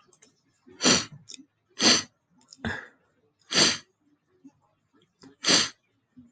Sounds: Sniff